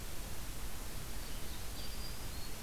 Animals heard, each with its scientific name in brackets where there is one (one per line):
Blue-headed Vireo (Vireo solitarius)
Black-throated Green Warbler (Setophaga virens)
Ovenbird (Seiurus aurocapilla)